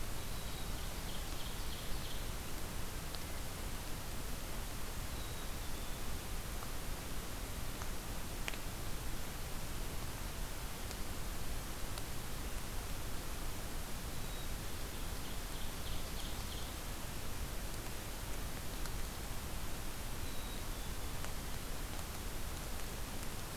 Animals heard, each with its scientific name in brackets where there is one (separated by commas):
Black-capped Chickadee (Poecile atricapillus), Ovenbird (Seiurus aurocapilla)